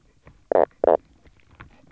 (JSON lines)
{"label": "biophony, knock croak", "recorder": "SoundTrap 300"}